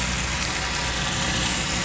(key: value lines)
label: anthrophony, boat engine
recorder: SoundTrap 500